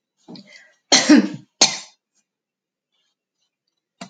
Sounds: Cough